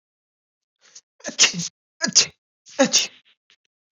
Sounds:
Sneeze